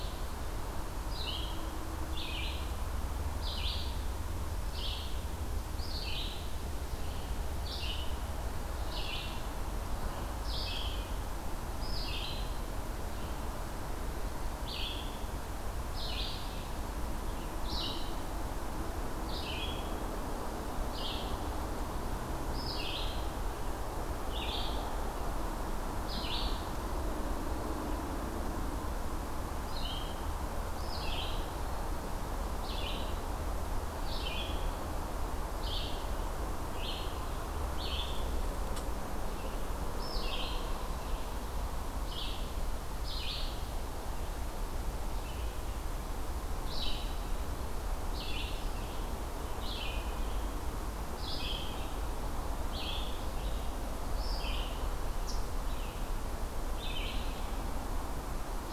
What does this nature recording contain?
Red-eyed Vireo